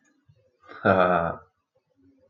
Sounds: Laughter